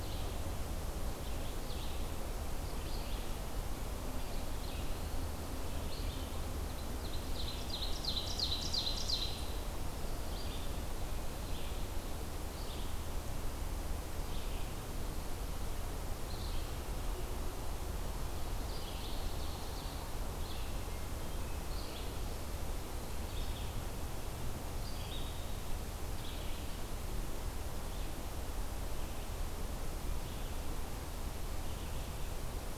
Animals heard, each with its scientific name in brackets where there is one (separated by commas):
Red-eyed Vireo (Vireo olivaceus), Ovenbird (Seiurus aurocapilla), Hermit Thrush (Catharus guttatus)